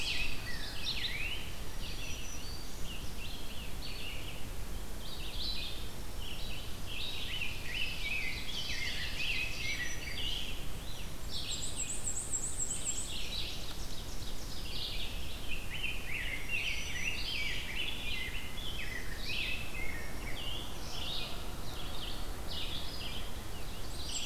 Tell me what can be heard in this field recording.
Rose-breasted Grosbeak, Red-eyed Vireo, Black-throated Green Warbler, Ovenbird, Black-and-white Warbler